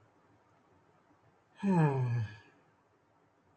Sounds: Sigh